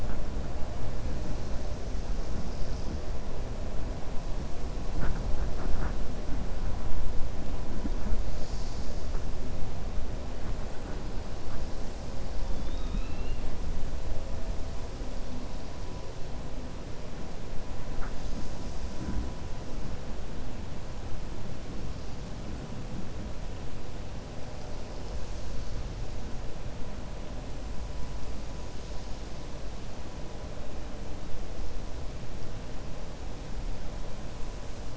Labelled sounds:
12.5	13.4	killer whale, 2.4 to 4.1 kHz

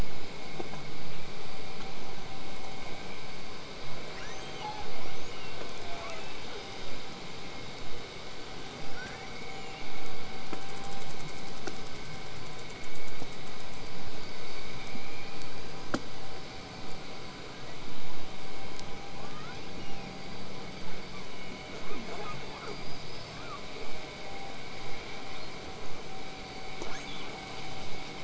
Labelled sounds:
4.1	5.8	killer whale, southern resident, L pod, call S02iii, 0.19 to 8.0 kHz
5.8	6.8	killer whale, southern resident, 0.43 to 8.0 kHz
8.7	9.8	killer whale, southern resident, 1.3 to 8.0 kHz
19.1	20.4	killer whale, southern resident, L pod, call S02iii, 0.64 to 5.9 kHz
21.8	22.8	killer whale, southern resident, 0.20 to 8.0 kHz
22.6	23.7	killer whale, southern resident, L pod, call S19, 0.80 to 8.0 kHz
25.3	25.5	killer whale, southern resident, 3.1 to 4.5 kHz
26.8	27.3	killer whale, southern resident, 0.31 to 6.7 kHz

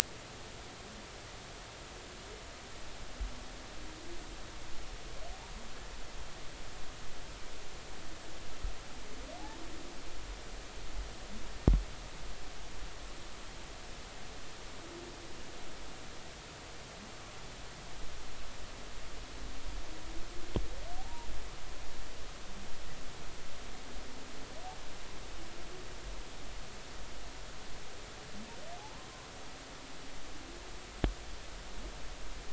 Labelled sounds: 21.0	21.3	humpback whale, 0.80 to 1.0 kHz

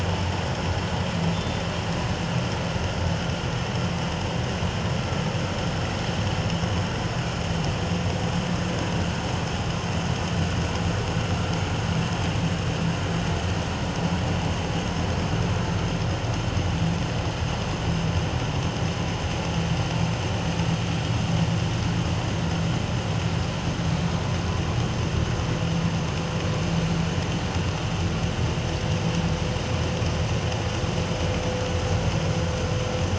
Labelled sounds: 1.3	1.6	killer whale, northern resident, G clan, 3.5 to 3.6 kHz

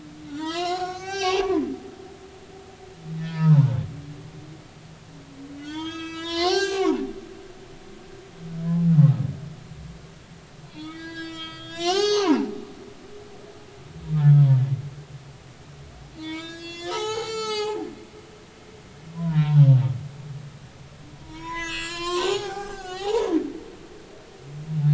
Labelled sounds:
0.3	1.7	humpback whale, 0.80 to 7.9 kHz
3.2	3.8	humpback whale, 0.83 to 5.0 kHz
5.6	7.0	humpback whale, 0.80 to 8.0 kHz
8.7	8.9	humpback whale, 0.80 to 0.90 kHz
10.7	12.5	humpback whale, 0.80 to 7.6 kHz
14.2	14.5	humpback whale, 1.2 to 1.5 kHz
16.1	17.8	humpback whale, 0.80 to 8.0 kHz
19.1	19.7	humpback whale, 0.83 to 1.1 kHz
21.1	23.4	humpback whale, 0.80 to 8.0 kHz

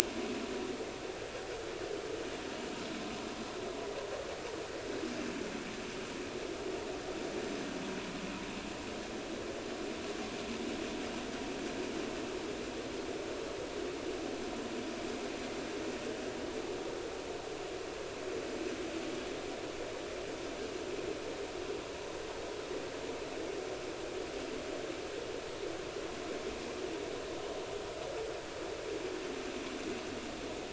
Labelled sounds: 0.2	0.4	vessel noise, 2.4 to 2.7 kHz

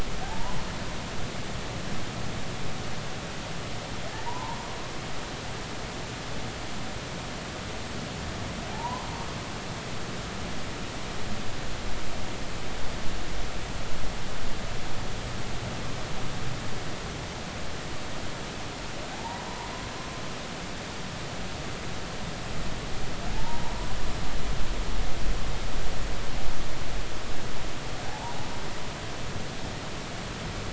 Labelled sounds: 0.2	0.6	humpback whale, 0.80 to 1.1 kHz
4.3	4.6	humpback whale, 0.83 to 1.1 kHz
8.7	9.1	humpback whale, 0.80 to 1.1 kHz
19.1	19.7	humpback whale, 0.80 to 1.1 kHz
23.3	23.8	humpback whale, 0.80 to 1.0 kHz
28.1	28.4	humpback whale, 0.80 to 1.0 kHz

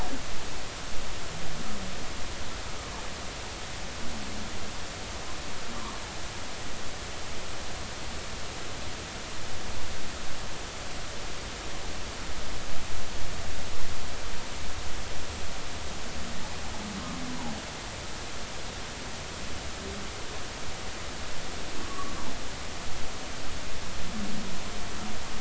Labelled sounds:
21.8	22.2	humpback whale, 1.0 to 1.2 kHz

